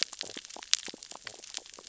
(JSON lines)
{"label": "biophony, stridulation", "recorder": "SoundTrap 600 or HydroMoth"}